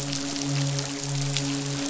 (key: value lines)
label: biophony, midshipman
recorder: SoundTrap 500